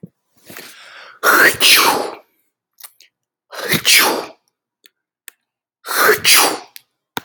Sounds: Sneeze